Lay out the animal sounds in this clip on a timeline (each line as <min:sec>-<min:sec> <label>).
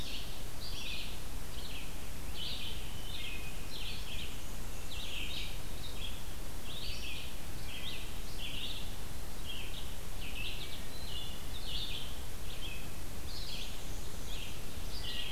0:00.0-0:00.8 Ovenbird (Seiurus aurocapilla)
0:00.0-0:15.3 Red-eyed Vireo (Vireo olivaceus)
0:03.9-0:05.4 Black-and-white Warbler (Mniotilta varia)
0:10.9-0:11.5 Wood Thrush (Hylocichla mustelina)
0:13.2-0:14.6 Black-and-white Warbler (Mniotilta varia)